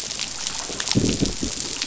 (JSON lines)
{"label": "biophony", "recorder": "SoundTrap 500"}